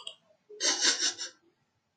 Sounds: Sniff